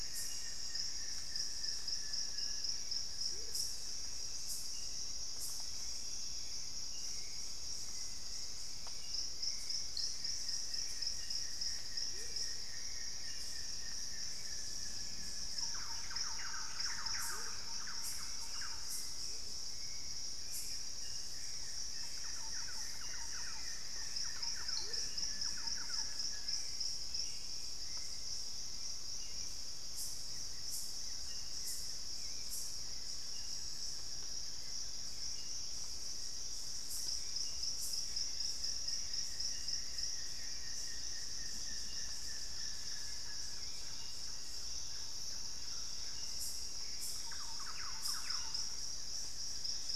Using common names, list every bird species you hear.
Buff-throated Woodcreeper, Hauxwell's Thrush, Amazonian Motmot, Thrush-like Wren, Black-faced Antthrush